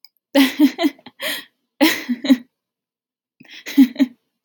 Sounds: Laughter